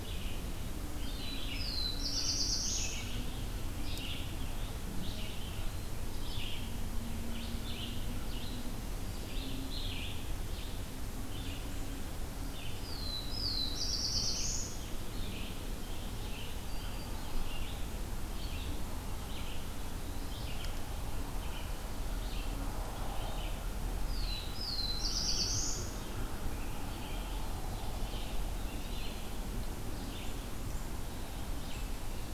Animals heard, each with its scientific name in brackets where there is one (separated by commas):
Red-eyed Vireo (Vireo olivaceus), Black-throated Green Warbler (Setophaga virens), Black-throated Blue Warbler (Setophaga caerulescens), Eastern Wood-Pewee (Contopus virens)